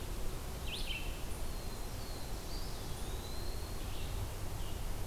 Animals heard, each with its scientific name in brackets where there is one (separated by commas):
Black-throated Blue Warbler (Setophaga caerulescens), Eastern Wood-Pewee (Contopus virens), Red-eyed Vireo (Vireo olivaceus)